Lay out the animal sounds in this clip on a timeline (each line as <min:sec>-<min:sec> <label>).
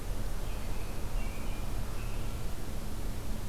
0:00.4-0:02.5 American Robin (Turdus migratorius)